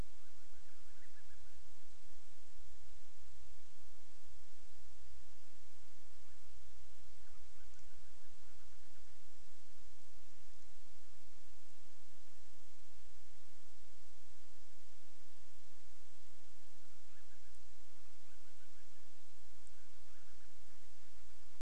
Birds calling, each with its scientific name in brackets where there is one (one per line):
Band-rumped Storm-Petrel (Hydrobates castro)